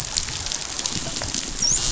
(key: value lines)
label: biophony, dolphin
recorder: SoundTrap 500